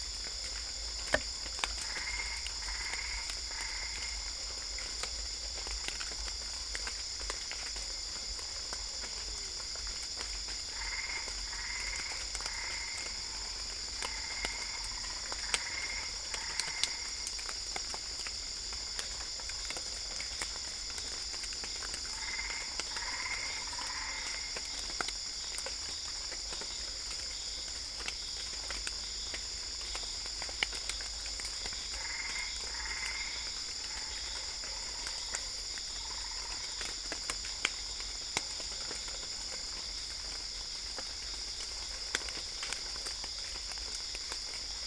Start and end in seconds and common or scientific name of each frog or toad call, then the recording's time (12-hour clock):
1.7	4.3	Boana albopunctata
10.5	17.1	Boana albopunctata
18.8	44.8	Dendropsophus cruzi
22.0	24.7	Boana albopunctata
31.8	33.6	Boana albopunctata
11:30pm